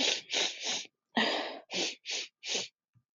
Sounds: Sniff